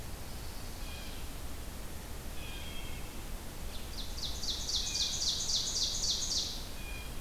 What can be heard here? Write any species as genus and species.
Setophaga pensylvanica, Cyanocitta cristata, Hylocichla mustelina, Seiurus aurocapilla